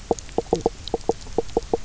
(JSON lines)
{"label": "biophony, knock croak", "recorder": "SoundTrap 300"}